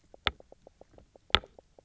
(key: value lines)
label: biophony, knock croak
recorder: SoundTrap 300